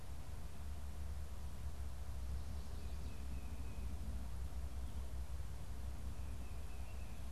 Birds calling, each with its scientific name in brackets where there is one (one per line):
Tufted Titmouse (Baeolophus bicolor)